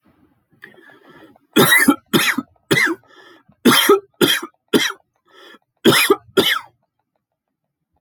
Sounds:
Cough